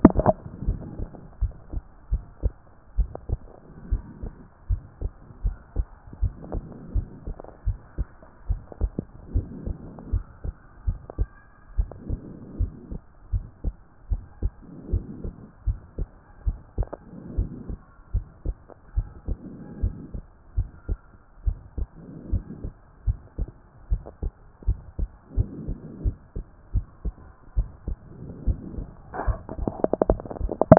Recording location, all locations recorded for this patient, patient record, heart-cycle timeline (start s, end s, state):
pulmonary valve (PV)
pulmonary valve (PV)+tricuspid valve (TV)+mitral valve (MV)
#Age: nan
#Sex: Female
#Height: nan
#Weight: nan
#Pregnancy status: True
#Murmur: Absent
#Murmur locations: nan
#Most audible location: nan
#Systolic murmur timing: nan
#Systolic murmur shape: nan
#Systolic murmur grading: nan
#Systolic murmur pitch: nan
#Systolic murmur quality: nan
#Diastolic murmur timing: nan
#Diastolic murmur shape: nan
#Diastolic murmur grading: nan
#Diastolic murmur pitch: nan
#Diastolic murmur quality: nan
#Outcome: Abnormal
#Campaign: 2014 screening campaign
0.00	0.64	unannotated
0.64	0.78	S1
0.78	0.98	systole
0.98	1.08	S2
1.08	1.40	diastole
1.40	1.52	S1
1.52	1.72	systole
1.72	1.82	S2
1.82	2.12	diastole
2.12	2.24	S1
2.24	2.42	systole
2.42	2.52	S2
2.52	2.98	diastole
2.98	3.10	S1
3.10	3.30	systole
3.30	3.40	S2
3.40	3.90	diastole
3.90	4.02	S1
4.02	4.22	systole
4.22	4.32	S2
4.32	4.70	diastole
4.70	4.82	S1
4.82	5.02	systole
5.02	5.10	S2
5.10	5.44	diastole
5.44	5.56	S1
5.56	5.76	systole
5.76	5.86	S2
5.86	6.22	diastole
6.22	6.34	S1
6.34	6.52	systole
6.52	6.64	S2
6.64	6.94	diastole
6.94	7.06	S1
7.06	7.26	systole
7.26	7.36	S2
7.36	7.66	diastole
7.66	7.78	S1
7.78	7.98	systole
7.98	8.06	S2
8.06	8.48	diastole
8.48	8.60	S1
8.60	8.80	systole
8.80	8.92	S2
8.92	9.34	diastole
9.34	9.46	S1
9.46	9.66	systole
9.66	9.76	S2
9.76	10.12	diastole
10.12	10.24	S1
10.24	10.44	systole
10.44	10.54	S2
10.54	10.86	diastole
10.86	10.98	S1
10.98	11.18	systole
11.18	11.28	S2
11.28	11.76	diastole
11.76	11.88	S1
11.88	12.08	systole
12.08	12.20	S2
12.20	12.58	diastole
12.58	12.72	S1
12.72	12.90	systole
12.90	13.00	S2
13.00	13.32	diastole
13.32	13.44	S1
13.44	13.64	systole
13.64	13.74	S2
13.74	14.10	diastole
14.10	14.22	S1
14.22	14.42	systole
14.42	14.52	S2
14.52	14.90	diastole
14.90	15.04	S1
15.04	15.24	systole
15.24	15.32	S2
15.32	15.66	diastole
15.66	15.78	S1
15.78	15.98	systole
15.98	16.08	S2
16.08	16.46	diastole
16.46	16.58	S1
16.58	16.78	systole
16.78	16.88	S2
16.88	17.36	diastole
17.36	17.48	S1
17.48	17.68	systole
17.68	17.78	S2
17.78	18.14	diastole
18.14	18.26	S1
18.26	18.46	systole
18.46	18.56	S2
18.56	18.96	diastole
18.96	19.08	S1
19.08	19.28	systole
19.28	19.38	S2
19.38	19.82	diastole
19.82	19.94	S1
19.94	20.14	systole
20.14	20.22	S2
20.22	20.56	diastole
20.56	20.68	S1
20.68	20.88	systole
20.88	20.98	S2
20.98	21.46	diastole
21.46	21.58	S1
21.58	21.78	systole
21.78	21.88	S2
21.88	22.30	diastole
22.30	22.44	S1
22.44	22.62	systole
22.62	22.72	S2
22.72	23.06	diastole
23.06	23.18	S1
23.18	23.38	systole
23.38	23.48	S2
23.48	23.90	diastole
23.90	24.02	S1
24.02	24.22	systole
24.22	24.32	S2
24.32	24.66	diastole
24.66	24.78	S1
24.78	24.98	systole
24.98	25.10	S2
25.10	25.36	diastole
25.36	25.48	S1
25.48	25.66	systole
25.66	25.76	S2
25.76	26.02	diastole
26.02	26.16	S1
26.16	26.36	systole
26.36	26.44	S2
26.44	26.74	diastole
26.74	26.86	S1
26.86	27.04	systole
27.04	27.14	S2
27.14	27.56	diastole
27.56	27.68	S1
27.68	27.88	systole
27.88	27.98	S2
27.98	28.46	diastole
28.46	28.58	S1
28.58	28.76	systole
28.76	28.86	S2
28.86	29.26	diastole
29.26	30.78	unannotated